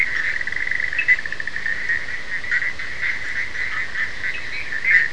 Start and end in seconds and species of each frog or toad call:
0.0	5.1	Boana bischoffi
0.9	1.2	Sphaenorhynchus surdus
4.2	4.6	Sphaenorhynchus surdus
4.3	4.7	Boana leptolineata
1:30am

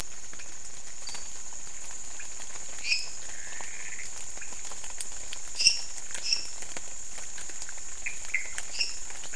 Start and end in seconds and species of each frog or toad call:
0.0	9.3	Leptodactylus podicipinus
1.0	1.5	Dendropsophus nanus
2.7	3.3	Dendropsophus minutus
3.2	4.2	Pithecopus azureus
5.5	6.7	Dendropsophus minutus
8.0	8.6	Pithecopus azureus
8.6	9.1	Dendropsophus minutus
midnight

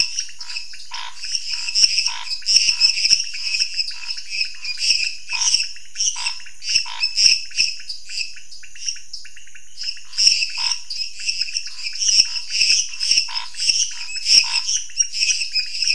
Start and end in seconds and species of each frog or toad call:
0.0	7.1	Scinax fuscovarius
0.0	15.9	Dendropsophus minutus
0.0	15.9	Dendropsophus nanus
0.0	15.9	Leptodactylus podicipinus
10.0	14.7	Scinax fuscovarius
~9pm

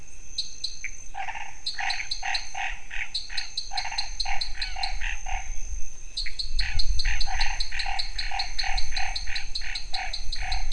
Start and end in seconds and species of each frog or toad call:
0.0	4.9	Dendropsophus nanus
0.8	1.0	Pithecopus azureus
1.1	5.5	Boana raniceps
6.0	10.7	Dendropsophus nanus
6.6	10.7	Boana raniceps
~7pm

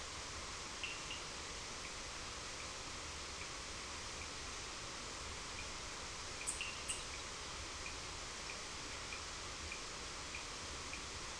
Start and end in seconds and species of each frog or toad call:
0.8	1.3	Sphaenorhynchus surdus
6.3	11.3	Sphaenorhynchus surdus
7pm

